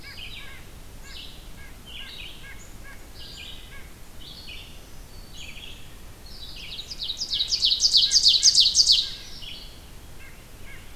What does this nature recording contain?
Red-eyed Vireo, White-breasted Nuthatch, Wood Thrush, Black-throated Green Warbler, Ovenbird